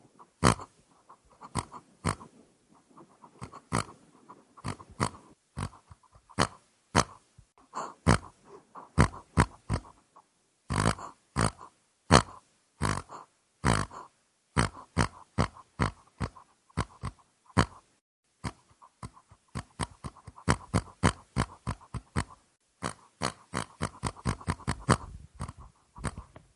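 A pig snorts once with a quick hissing sound. 0.3 - 0.7
A pig snorts twice quietly. 1.4 - 2.3
A pig snorts several times at irregular intervals. 3.5 - 5.9
A pig snorts twice with distinct sounds. 6.2 - 7.3
A pig breathes in and snorts once. 7.7 - 8.5
A pig snorts three times with decreasing volume. 8.9 - 10.0
A pig snorts twice with prolonged sounds, followed by one quick snort. 10.5 - 12.4
A pig snorts multiple times at an uneven pace. 14.4 - 17.8
A pig snorts multiple times with uneven pace and volume. 19.8 - 22.5
A pig snorts once with a quick hissing sound. 19.8 - 22.5
A pig snorts repeatedly with an accelerating pace. 23.1 - 25.2

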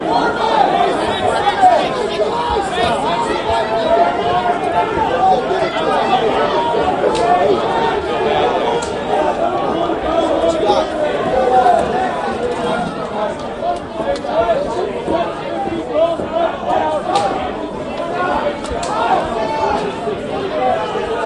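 Many people are talking and yelling in a market. 0.0 - 12.8
Many people are talking in a market or trade setting. 12.8 - 21.3
A man is yelling loudly at a market. 15.1 - 17.5

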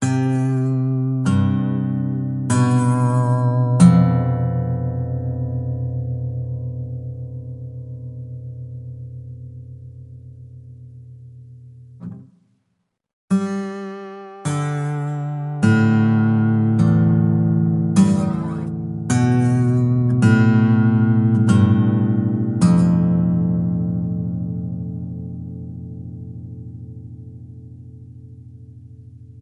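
A western guitar plays single notes nearby. 0.0 - 5.7
A western guitar echoes and gradually becomes quieter. 5.7 - 12.0
Guitar being silenced. 12.0 - 12.2
A western guitar plays single notes nearby. 13.3 - 24.0
A western guitar echoes and gradually becomes quieter. 24.0 - 29.4

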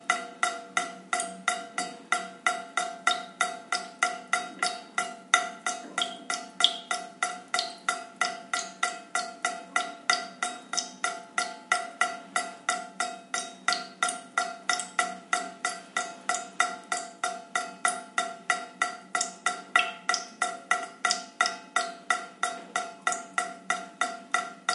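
Water drops drip steadily into a sink. 0.0 - 24.7

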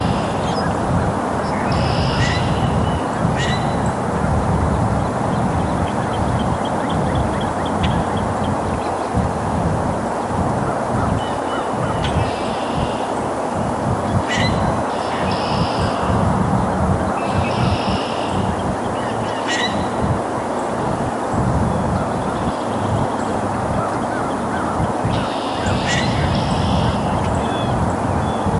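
A bird sings softly in the forest. 0.0 - 0.8
A flowing river roars loudly. 0.0 - 28.6
A goose honks softly. 0.6 - 1.5
A bird chirps softly. 1.5 - 2.2
A creek flows loudly in the background. 1.7 - 11.6
A bird caws loudly twice nearby in the forest. 2.1 - 4.0
Various birds sing at the edge of a peaceful forest. 4.1 - 10.7
A goose honks softly, repeating. 10.8 - 12.6
A bird caws loudly once nearby in the forest. 14.2 - 14.9
A bird chirps softly. 15.0 - 16.3
A goose honks softly, repeating. 16.9 - 17.9
A bird chirps softly. 17.2 - 18.6
A goose honks softly, repeating. 18.8 - 19.5
A bird caws loudly once nearby in the forest. 19.3 - 20.0
Cars roar loudly in the distance. 19.9 - 28.6
Various birds sing at the edge of a peaceful forest. 20.3 - 28.6
A goose honks softly, repeating. 22.1 - 22.8
A goose honks softly, repeating. 23.7 - 27.0
A bird chirps softly. 25.4 - 27.2
A bird caws loudly once nearby in the forest. 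25.7 - 26.3

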